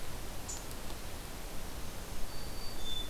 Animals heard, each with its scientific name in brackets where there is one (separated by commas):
Hermit Thrush (Catharus guttatus)